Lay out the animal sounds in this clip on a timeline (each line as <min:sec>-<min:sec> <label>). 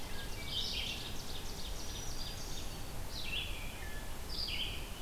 0:00.0-0:00.6 Wood Thrush (Hylocichla mustelina)
0:00.0-0:05.0 Red-eyed Vireo (Vireo olivaceus)
0:00.0-0:02.9 Ovenbird (Seiurus aurocapilla)
0:01.6-0:02.8 Black-throated Green Warbler (Setophaga virens)
0:03.5-0:04.3 Wood Thrush (Hylocichla mustelina)